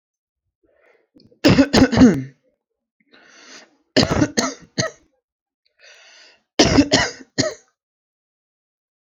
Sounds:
Cough